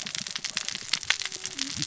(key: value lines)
label: biophony, cascading saw
recorder: SoundTrap 600 or HydroMoth